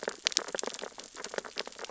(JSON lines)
{"label": "biophony, sea urchins (Echinidae)", "recorder": "SoundTrap 600 or HydroMoth"}